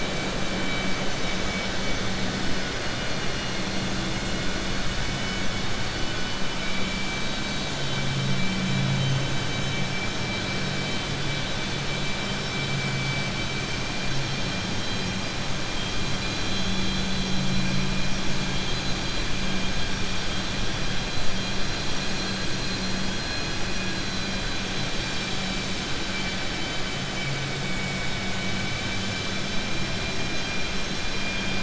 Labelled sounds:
26.5	27.0	vessel noise, 2.3 to 3.9 kHz

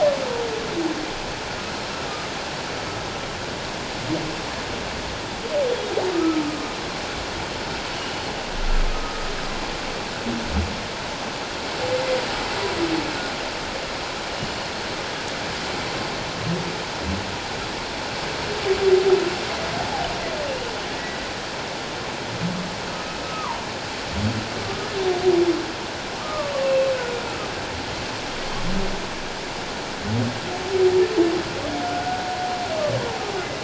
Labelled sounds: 6.1	6.4	humpback whale, 1.1 to 1.4 kHz
7.9	9.2	humpback whale, 1.2 to 3.0 kHz
19.8	20.7	humpback whale, 0.78 to 3.0 kHz
23.2	23.6	humpback whale, 0.88 to 1.3 kHz
24.6	24.9	humpback whale, 1.1 to 1.3 kHz
26.2	27.2	humpback whale, 1.1 to 2.8 kHz
31.8	32.2	humpback whale, 1.4 to 1.5 kHz
33.4	33.6	humpback whale, 2.0 to 2.1 kHz

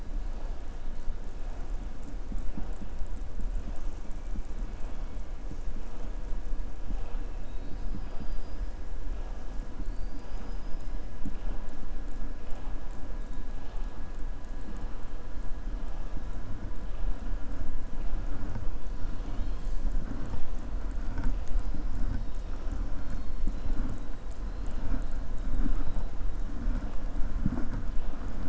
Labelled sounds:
7.3	8.7	killer whale, southern resident, 3.7 to 5.2 kHz
9.8	10.9	killer whale, southern resident, 4.2 to 7.5 kHz

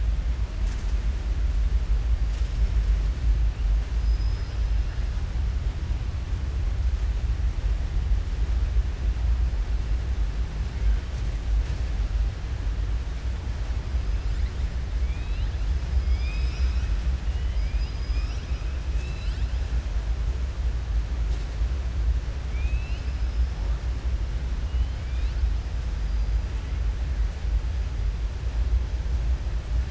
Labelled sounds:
3.9	4.6	killer whale, southern resident, 4.1 to 5.7 kHz
16.0	16.9	killer whale, southern resident, 1.4 to 6.5 kHz
17.2	18.6	killer whale, southern resident, 2.0 to 6.2 kHz

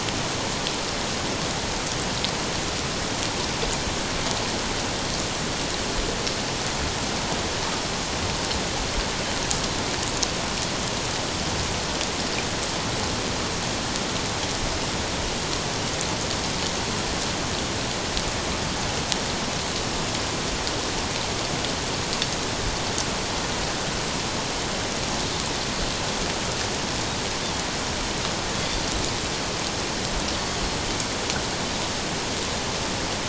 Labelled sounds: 28.6	28.8	Pacific white-sided dolphin, 3.3 to 3.6 kHz

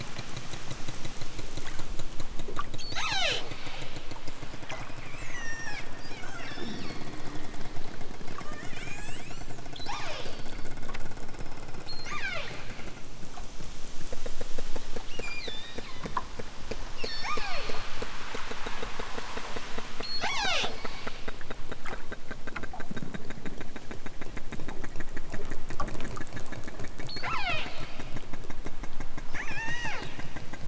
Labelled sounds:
2.8	3.5	killer whale, southern Alaska resident, 0.28 to 8.0 kHz
6.4	7.7	killer whale, southern Alaska resident, 0 to 6.9 kHz
8.3	10.6	killer whale, southern Alaska resident, 0.28 to 8.0 kHz
11.9	12.7	killer whale, southern Alaska resident, 0.18 to 8.0 kHz
15.1	16.1	killer whale, southern Alaska resident, 0.73 to 8.0 kHz
17.0	17.8	killer whale, southern Alaska resident, 0.23 to 8.0 kHz
20.0	20.8	killer whale, southern Alaska resident, 0.28 to 8.0 kHz
27.1	27.8	killer whale, southern Alaska resident, 0.23 to 6.3 kHz
29.3	30.1	killer whale, southern Alaska resident, 0.41 to 7.8 kHz

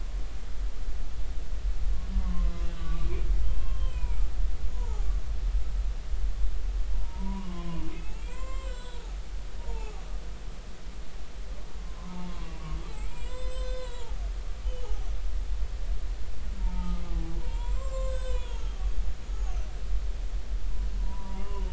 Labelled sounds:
2.2	3.1	humpback whale, 0.99 to 1.6 kHz
3.4	5.1	humpback whale, 0.80 to 3.2 kHz
6.9	9.0	humpback whale, 0.86 to 7.5 kHz
9.6	10.0	humpback whale, 0.80 to 0.99 kHz
11.9	12.7	humpback whale, 0.83 to 2.8 kHz
13.0	14.2	humpback whale, 0.80 to 7.8 kHz
14.8	15.1	humpback whale, 0.80 to 0.96 kHz
15.6	18.6	humpback whale, 0.80 to 7.9 kHz
19.4	19.6	humpback whale, 6.3 to 7.0 kHz
21.0	21.7	humpback whale, 0.90 to 1.1 kHz

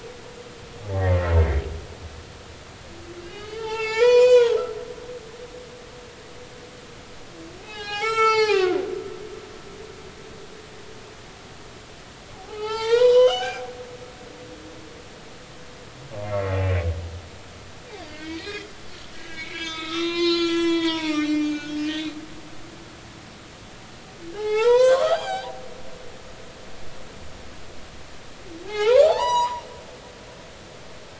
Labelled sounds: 0.8	1.1	humpback whale, 0.80 to 0.90 kHz
3.2	4.6	humpback whale, 0.80 to 7.4 kHz
7.6	8.8	humpback whale, 0.80 to 7.7 kHz
12.3	13.7	humpback whale, 0.80 to 6.5 kHz
16.2	16.6	humpback whale, 1.9 to 2.2 kHz
18.1	22.5	humpback whale, 0.86 to 7.1 kHz
24.3	25.6	humpback whale, 0.80 to 8.0 kHz
28.7	29.6	humpback whale, 0.80 to 8.0 kHz

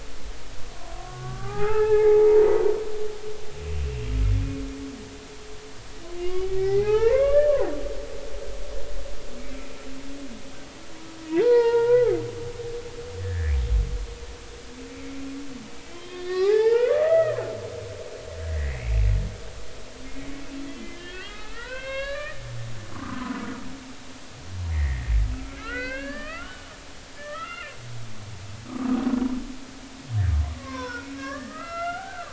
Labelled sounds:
0.9	2.6	humpback whale, 0.80 to 2.7 kHz
3.8	4.1	humpback whale, 2.6 to 2.8 kHz
6.2	7.5	humpback whale, 0.80 to 3.0 kHz
11.3	12.2	humpback whale, 0.83 to 4.4 kHz
13.2	13.5	humpback whale, 1.6 to 2.0 kHz
15.9	17.4	humpback whale, 0.80 to 5.1 kHz
18.5	18.9	humpback whale, 1.8 to 2.3 kHz
20.9	22.4	humpback whale, 0.90 to 4.5 kHz
22.9	23.4	humpback whale, 0.96 to 1.3 kHz
24.7	26.7	humpback whale, 1.1 to 4.8 kHz
27.2	27.8	humpback whale, 1.1 to 2.9 kHz
30.4	32.3	humpback whale, 0.93 to 5.7 kHz

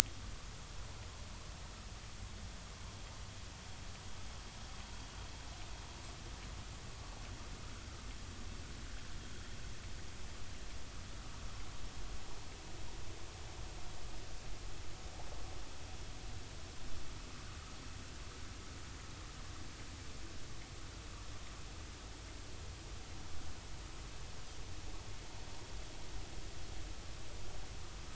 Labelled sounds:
0.0	0.3	vessel noise, 3.2 to 3.3 kHz

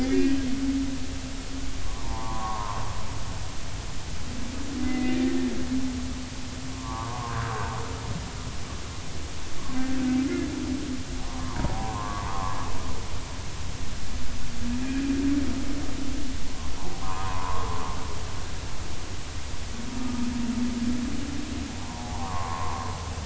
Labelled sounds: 0.0	0.4	humpback whale, 1.6 to 2.0 kHz
1.8	2.8	humpback whale, 0.80 to 1.3 kHz
4.8	5.2	humpback whale, 2.0 to 2.1 kHz
6.7	7.7	humpback whale, 0.80 to 1.7 kHz
9.7	10.0	humpback whale, 1.5 to 1.6 kHz
11.3	12.6	humpback whale, 0.80 to 1.3 kHz
17.0	17.9	humpback whale, 0.86 to 1.3 kHz
21.8	22.9	humpback whale, 0.80 to 1.3 kHz

